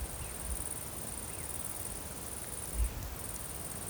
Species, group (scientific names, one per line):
Tettigonia viridissima
Orthoptera